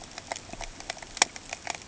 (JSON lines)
{"label": "ambient", "recorder": "HydroMoth"}